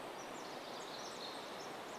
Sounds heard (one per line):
Pacific Wren song